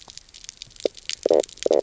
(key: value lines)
label: biophony, knock croak
recorder: SoundTrap 300